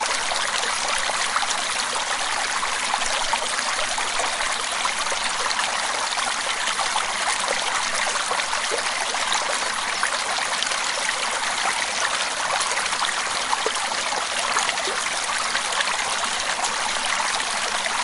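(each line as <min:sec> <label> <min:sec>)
0:00.0 Water babbling continuously with natural sounds. 0:18.0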